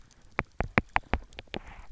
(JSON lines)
{"label": "biophony, knock", "recorder": "SoundTrap 300"}